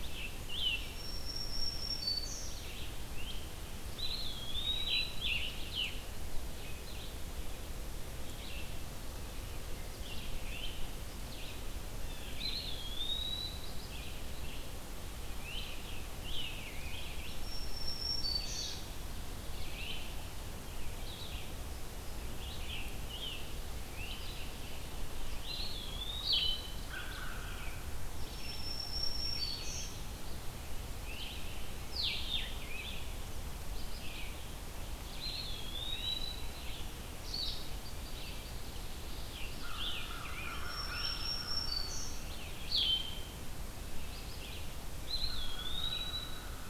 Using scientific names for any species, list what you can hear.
Piranga olivacea, Vireo olivaceus, Setophaga virens, Contopus virens, Cyanocitta cristata, Vireo solitarius, Corvus brachyrhynchos, Melospiza melodia